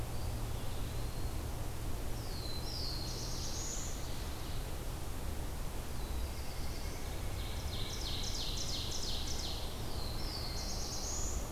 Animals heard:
White-breasted Nuthatch (Sitta carolinensis)
Eastern Wood-Pewee (Contopus virens)
Black-throated Blue Warbler (Setophaga caerulescens)
Ovenbird (Seiurus aurocapilla)

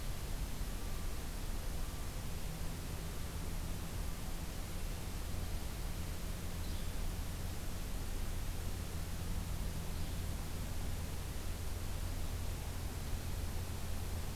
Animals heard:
Yellow-bellied Flycatcher (Empidonax flaviventris)

